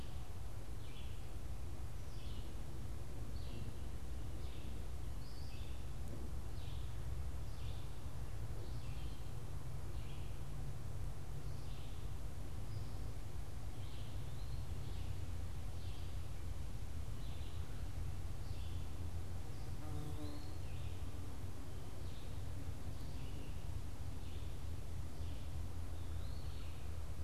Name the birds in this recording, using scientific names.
Vireo olivaceus, Contopus virens